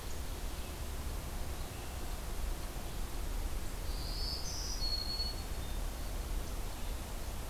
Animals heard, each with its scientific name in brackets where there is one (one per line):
Hermit Thrush (Catharus guttatus)
Black-throated Green Warbler (Setophaga virens)